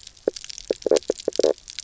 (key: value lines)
label: biophony, knock croak
recorder: SoundTrap 300